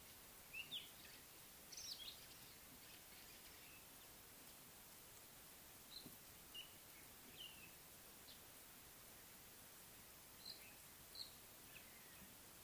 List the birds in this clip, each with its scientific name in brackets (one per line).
Mocking Cliff-Chat (Thamnolaea cinnamomeiventris)